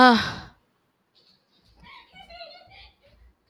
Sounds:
Sigh